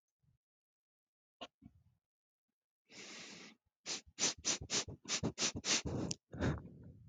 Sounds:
Sniff